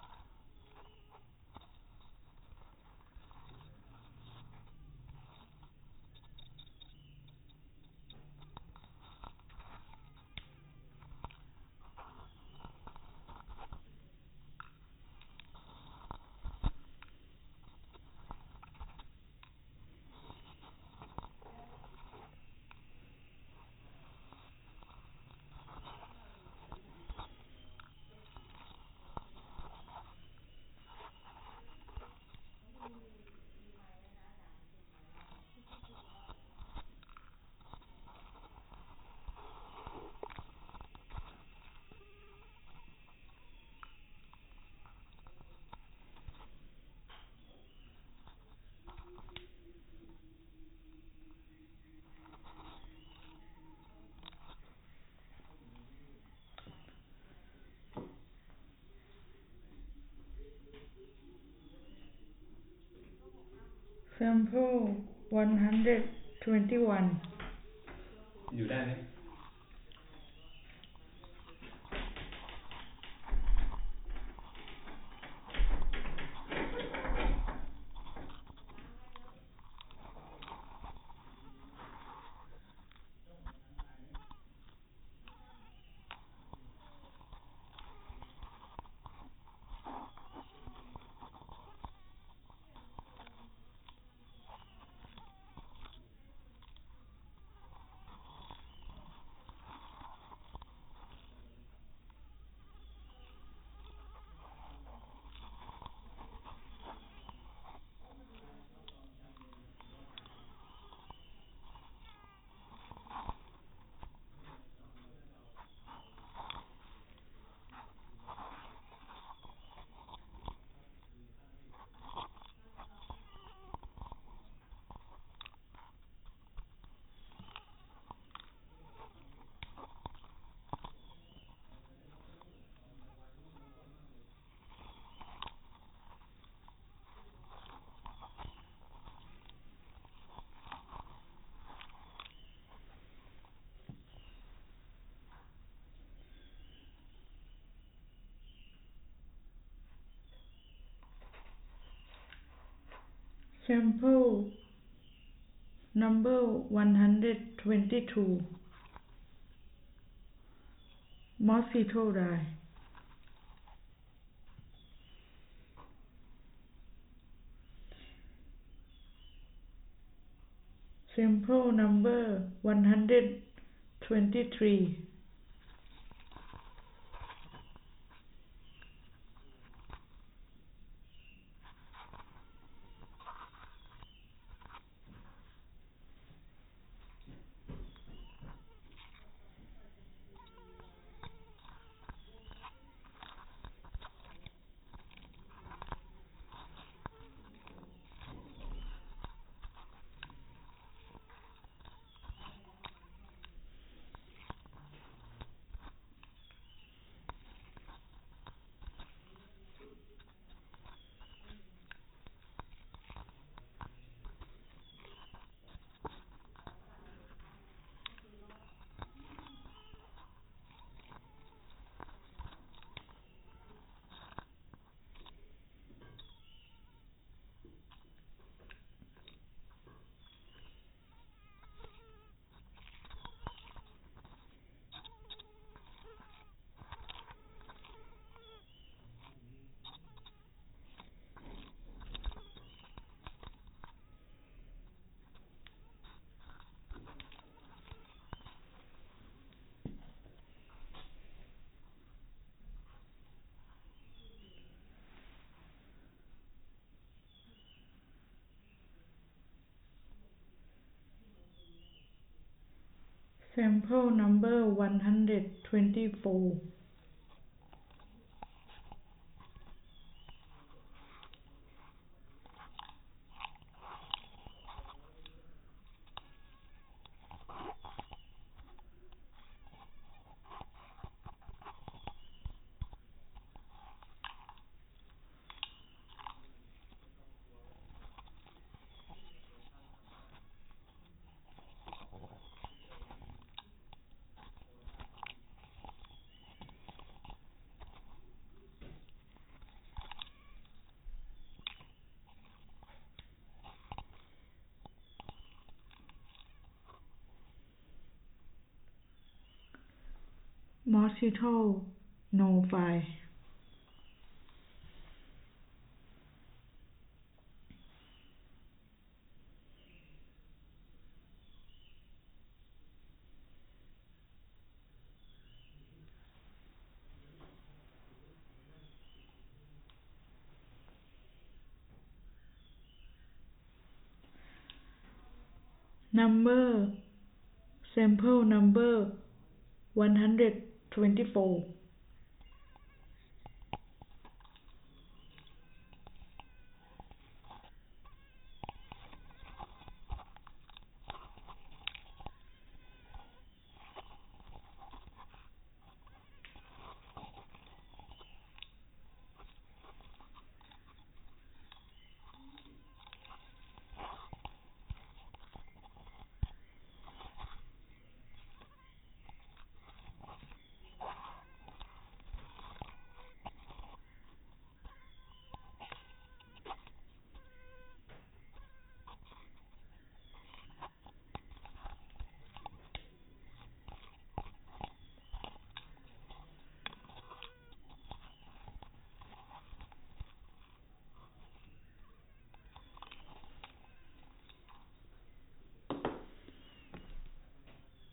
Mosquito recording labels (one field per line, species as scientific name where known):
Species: no mosquito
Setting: cup